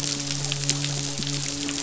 {"label": "biophony, midshipman", "recorder": "SoundTrap 500"}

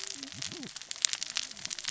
{"label": "biophony, cascading saw", "recorder": "SoundTrap 600 or HydroMoth"}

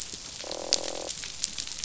{"label": "biophony, croak", "recorder": "SoundTrap 500"}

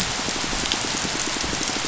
{"label": "biophony, pulse", "recorder": "SoundTrap 500"}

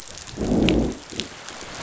{"label": "biophony, growl", "recorder": "SoundTrap 500"}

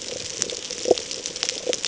{"label": "ambient", "recorder": "HydroMoth"}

